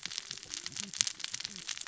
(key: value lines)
label: biophony, cascading saw
recorder: SoundTrap 600 or HydroMoth